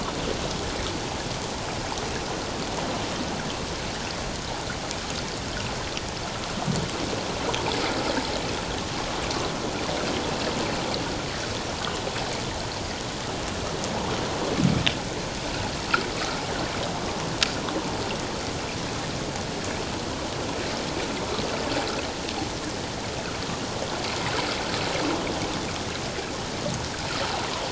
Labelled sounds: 16.1	16.4	water noise, 1.1 to 1.5 kHz

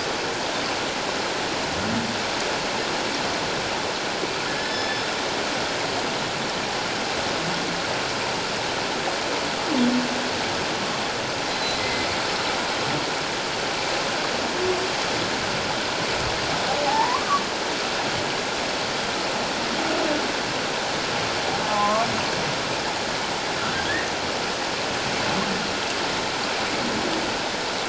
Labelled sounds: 4.5	5.1	humpback whale, 1.7 to 5.3 kHz
11.5	12.1	humpback whale, 1.9 to 4.1 kHz
16.8	17.4	humpback whale, 0.78 to 1.3 kHz
21.7	22.1	humpback whale, 0.97 to 1.2 kHz

